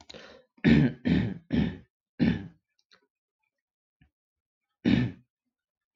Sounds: Throat clearing